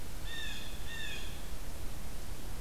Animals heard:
Blue Jay (Cyanocitta cristata)

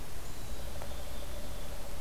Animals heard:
Black-capped Chickadee (Poecile atricapillus)

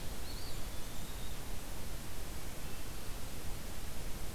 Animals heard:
Eastern Wood-Pewee (Contopus virens)

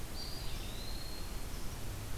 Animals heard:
Eastern Wood-Pewee (Contopus virens)

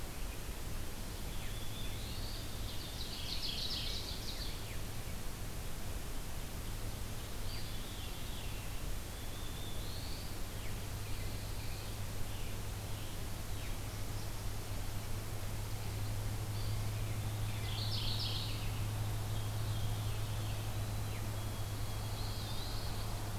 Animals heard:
Mourning Warbler (Geothlypis philadelphia), Eastern Wood-Pewee (Contopus virens), Ovenbird (Seiurus aurocapilla), Black-throated Blue Warbler (Setophaga caerulescens), White-throated Sparrow (Zonotrichia albicollis), Scarlet Tanager (Piranga olivacea), Veery (Catharus fuscescens)

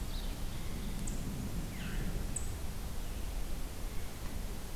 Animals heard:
Veery (Catharus fuscescens), Red-eyed Vireo (Vireo olivaceus)

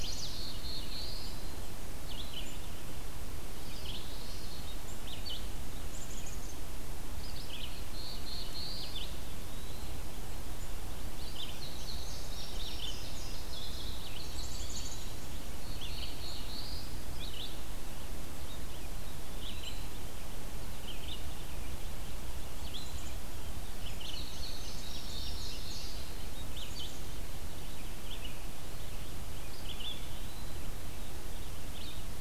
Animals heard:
Black-throated Blue Warbler (Setophaga caerulescens), Red-eyed Vireo (Vireo olivaceus), Chestnut-sided Warbler (Setophaga pensylvanica), Indigo Bunting (Passerina cyanea), Common Yellowthroat (Geothlypis trichas), Black-capped Chickadee (Poecile atricapillus), Eastern Wood-Pewee (Contopus virens)

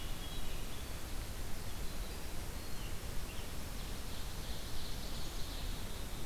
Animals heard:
Hermit Thrush (Catharus guttatus), Black-capped Chickadee (Poecile atricapillus), Ovenbird (Seiurus aurocapilla), Scarlet Tanager (Piranga olivacea), Winter Wren (Troglodytes hiemalis)

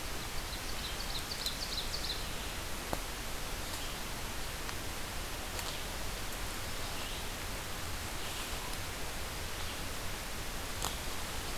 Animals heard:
Red-eyed Vireo (Vireo olivaceus), Ovenbird (Seiurus aurocapilla)

